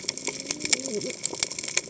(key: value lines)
label: biophony, cascading saw
recorder: HydroMoth